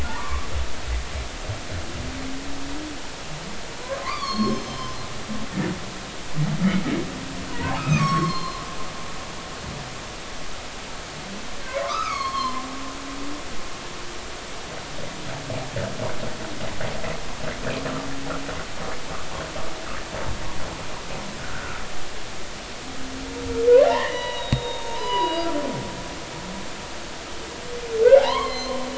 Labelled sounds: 0.0	0.5	humpback whale, 0.83 to 1.2 kHz
4.0	5.0	humpback whale, 0.83 to 6.4 kHz
7.5	8.6	humpback whale, 0.90 to 6.5 kHz
11.7	12.6	humpback whale, 0.90 to 4.7 kHz
21.4	21.8	humpback whale, 1.2 to 1.6 kHz
23.8	25.5	humpback whale, 0.80 to 5.0 kHz
28.2	28.8	humpback whale, 0.80 to 4.4 kHz

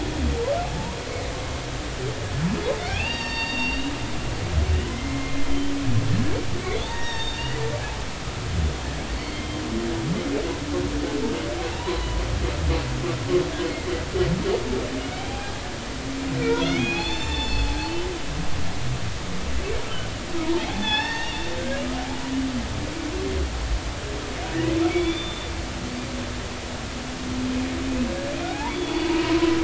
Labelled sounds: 2.8	4.0	humpback whale, 0.80 to 5.7 kHz
4.9	5.7	humpback whale, 2.0 to 3.2 kHz
6.7	7.6	humpback whale, 0.83 to 5.7 kHz
9.1	9.6	humpback whale, 2.0 to 4.5 kHz
11.7	12.2	humpback whale, 0.80 to 4.1 kHz
15.0	15.5	humpback whale, 0.80 to 2.5 kHz
16.5	17.8	humpback whale, 0.80 to 7.2 kHz
18.2	18.5	humpback whale, 1.7 to 1.9 kHz
20.4	21.4	humpback whale, 0.80 to 5.5 kHz
24.9	25.5	humpback whale, 2.2 to 3.6 kHz
28.5	29.4	humpback whale, 0.80 to 3.5 kHz

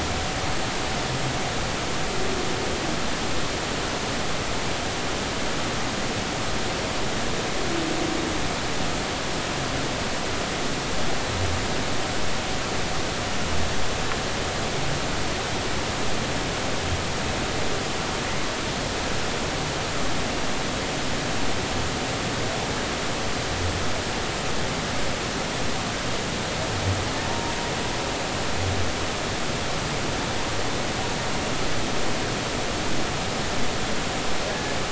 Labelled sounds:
27.2	27.5	humpback whale, 0.90 to 0.96 kHz
34.5	34.8	humpback whale, 1.6 to 1.8 kHz

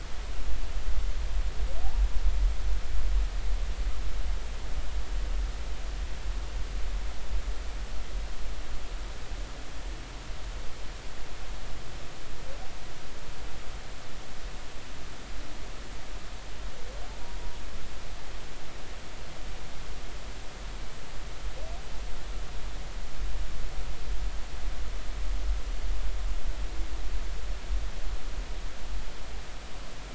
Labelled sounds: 17.1	17.4	humpback whale, 0.83 to 0.99 kHz

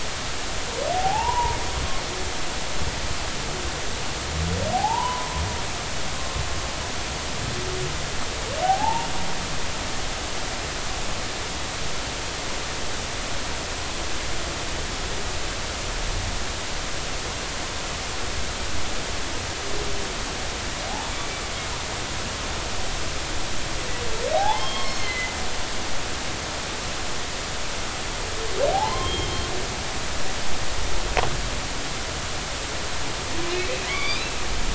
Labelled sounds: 0.9	1.6	humpback whale, 0.80 to 1.1 kHz
4.7	5.4	humpback whale, 0.80 to 1.1 kHz
6.1	6.4	humpback whale, 1.0 to 1.2 kHz
8.6	9.1	humpback whale, 0.80 to 0.99 kHz
20.9	21.4	humpback whale, 0.80 to 2.4 kHz
24.3	25.3	humpback whale, 0.80 to 4.4 kHz
28.7	29.3	humpback whale, 0.80 to 3.3 kHz
33.8	34.2	humpback whale, 1.1 to 5.2 kHz

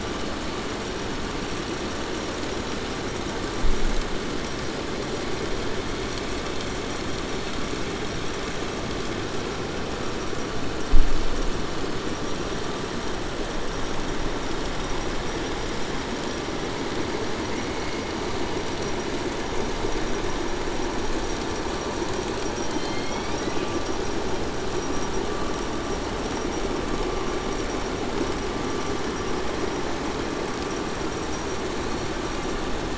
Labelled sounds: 22.6	23.7	killer whale, 1.9 to 5.5 kHz

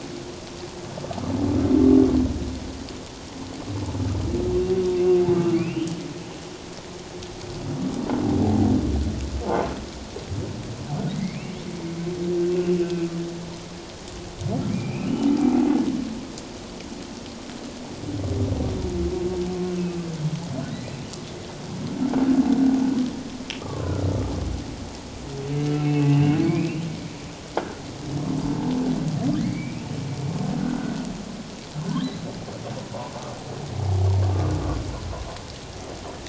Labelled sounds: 5.0	6.0	humpback whale, 2.1 to 3.2 kHz
11.1	11.5	humpback whale, 1.9 to 2.9 kHz
12.6	13.1	humpback whale, 2.5 to 2.8 kHz
14.7	15.4	humpback whale, 2.2 to 3.0 kHz
19.8	20.0	humpback whale, 2.5 to 2.7 kHz
20.7	21.0	humpback whale, 1.9 to 2.0 kHz
23.6	23.9	humpback whale, 0.97 to 1.3 kHz
25.7	26.4	humpback whale, 2.4 to 2.8 kHz
29.4	29.9	humpback whale, 2.0 to 2.7 kHz

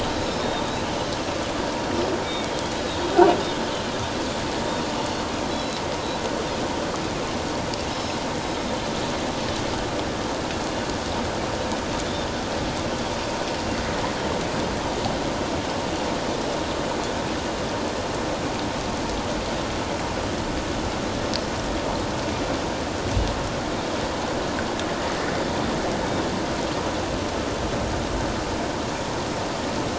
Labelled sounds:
0.4	0.7	Pacific white-sided dolphin, 3.6 to 3.8 kHz
2.2	3.0	Pacific white-sided dolphin, 2.2 to 3.9 kHz
5.0	5.8	Pacific white-sided dolphin, 3.8 to 5.3 kHz
7.9	8.2	Pacific white-sided dolphin, 5.1 to 5.3 kHz

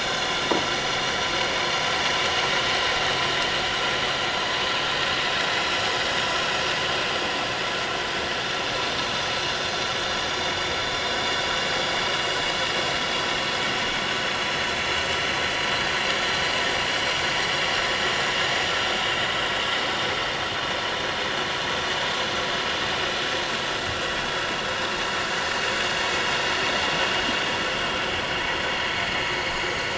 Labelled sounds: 19.2	19.5	vessel noise, 3.7 to 3.9 kHz

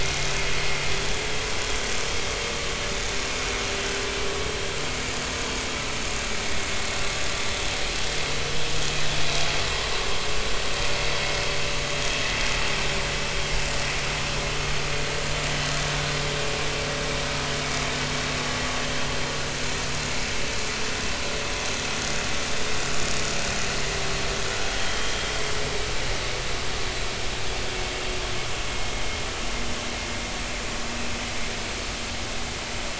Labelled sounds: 24.8	25.1	vessel noise, 3.0 to 3.3 kHz

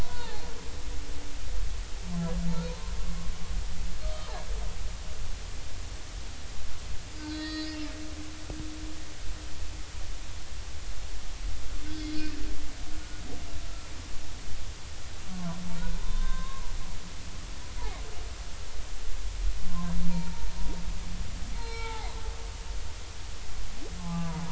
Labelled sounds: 0.0	0.4	humpback whale, 0.80 to 1.1 kHz
4.0	4.3	humpback whale, 1.1 to 1.3 kHz
7.2	7.8	humpback whale, 1.5 to 6.6 kHz
11.9	12.3	humpback whale, 3.3 to 5.1 kHz
15.2	15.6	humpback whale, 0.93 to 1.3 kHz
16.0	16.7	humpback whale, 0.90 to 3.8 kHz
19.7	20.5	humpback whale, 0.90 to 1.1 kHz
21.5	22.1	humpback whale, 0.80 to 4.3 kHz
24.0	24.3	humpback whale, 0.80 to 1.2 kHz

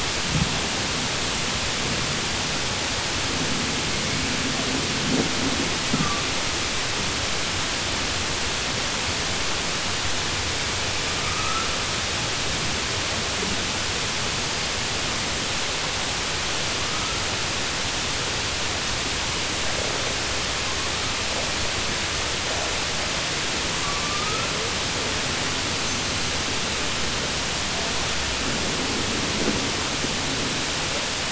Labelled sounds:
11.2	11.7	killer whale, southern resident, 1.2 to 2.3 kHz

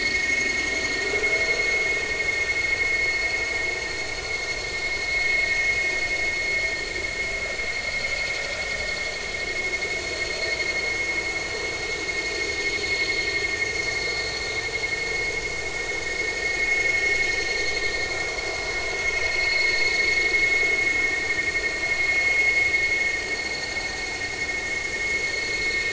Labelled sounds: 19.4	19.9	vessel noise, 4.2 to 4.4 kHz

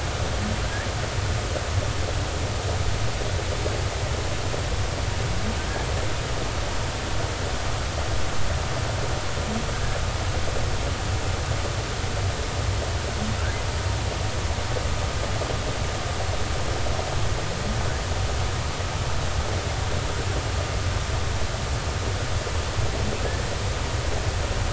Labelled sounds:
23.2	23.5	humpback whale, 1.6 to 1.9 kHz

